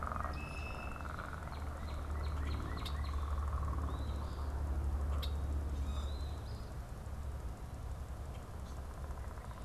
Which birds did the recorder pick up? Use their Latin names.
Agelaius phoeniceus, Cardinalis cardinalis, unidentified bird, Sayornis phoebe